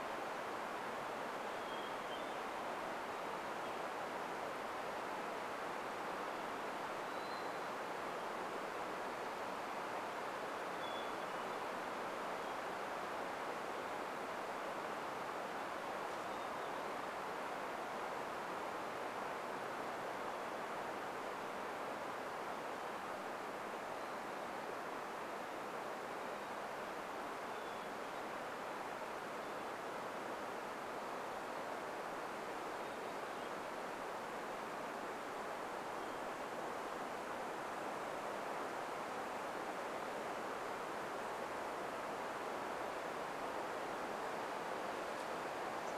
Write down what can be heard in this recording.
Hermit Thrush song, unidentified bird chip note